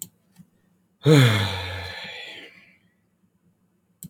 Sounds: Sigh